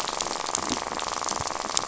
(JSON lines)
{"label": "biophony, rattle", "recorder": "SoundTrap 500"}